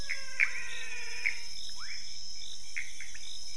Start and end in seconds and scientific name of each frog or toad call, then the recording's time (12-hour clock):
0.0	1.6	Physalaemus albonotatus
0.0	3.5	Leptodactylus fuscus
0.0	3.5	Pithecopus azureus
12:00am